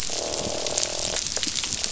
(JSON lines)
{"label": "biophony, croak", "recorder": "SoundTrap 500"}